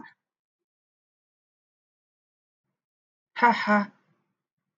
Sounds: Laughter